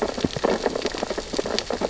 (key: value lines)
label: biophony, sea urchins (Echinidae)
recorder: SoundTrap 600 or HydroMoth